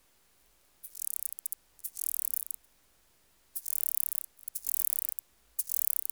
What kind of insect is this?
orthopteran